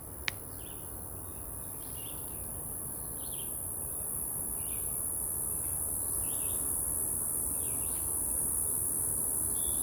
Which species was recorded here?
Okanagana rimosa